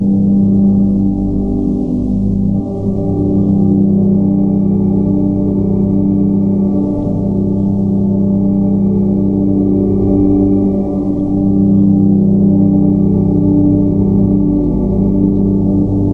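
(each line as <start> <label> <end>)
0.0 An organ playing distantly in a church. 16.1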